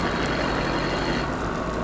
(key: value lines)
label: anthrophony, boat engine
recorder: SoundTrap 500